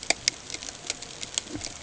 {"label": "ambient", "recorder": "HydroMoth"}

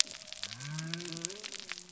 {"label": "biophony", "recorder": "SoundTrap 300"}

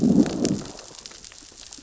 {"label": "biophony, growl", "recorder": "SoundTrap 600 or HydroMoth"}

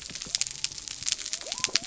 {"label": "biophony", "recorder": "SoundTrap 300"}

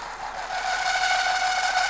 {"label": "anthrophony, boat engine", "recorder": "SoundTrap 500"}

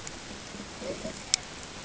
{"label": "ambient", "recorder": "HydroMoth"}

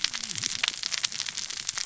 {"label": "biophony, cascading saw", "recorder": "SoundTrap 600 or HydroMoth"}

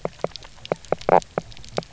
{"label": "biophony", "recorder": "SoundTrap 300"}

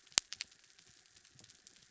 {"label": "anthrophony, mechanical", "recorder": "SoundTrap 300"}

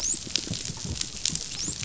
{"label": "biophony, dolphin", "recorder": "SoundTrap 500"}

